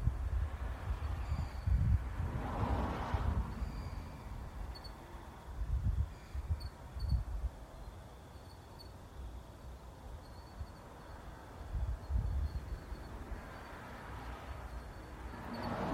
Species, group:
Ornebius aperta, Orthoptera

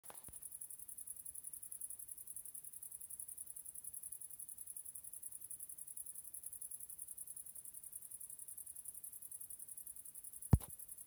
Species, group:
Tettigonia viridissima, Orthoptera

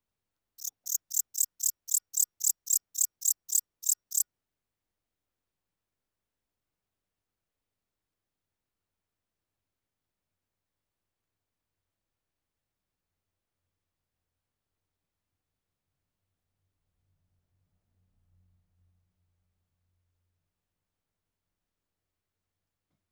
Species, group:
Pholidoptera aptera, Orthoptera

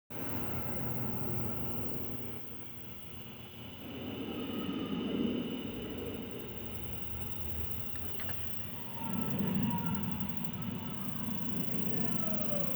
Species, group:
Diceroprocta grossa, Cicadidae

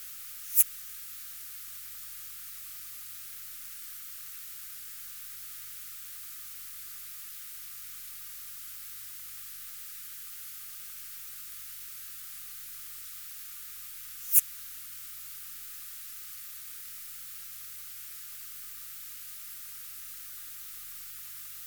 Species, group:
Poecilimon affinis, Orthoptera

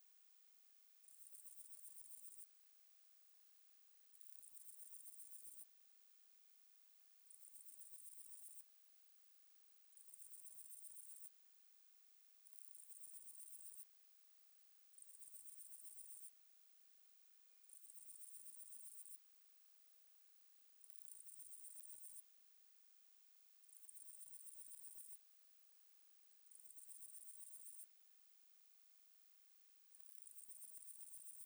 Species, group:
Parnassiana gionica, Orthoptera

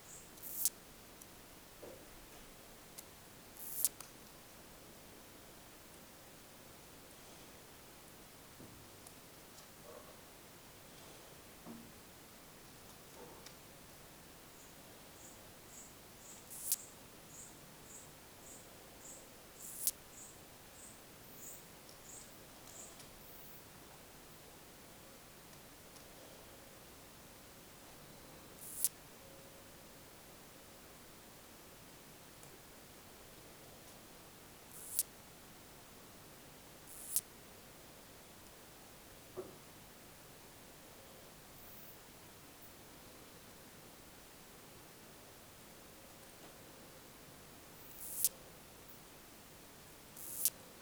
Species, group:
Poecilimon macedonicus, Orthoptera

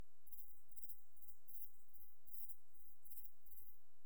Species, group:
Pholidoptera griseoaptera, Orthoptera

